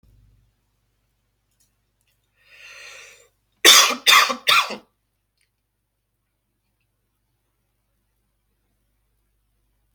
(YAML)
expert_labels:
- quality: ok
  cough_type: dry
  dyspnea: false
  wheezing: false
  stridor: false
  choking: false
  congestion: false
  nothing: true
  diagnosis: lower respiratory tract infection
  severity: mild
age: 32
gender: male
respiratory_condition: false
fever_muscle_pain: true
status: symptomatic